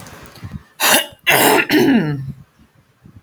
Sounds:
Throat clearing